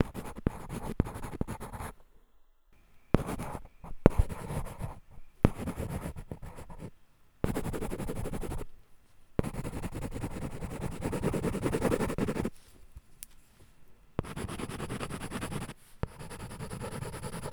Which body part is typically used to control the tool being utilized?
hand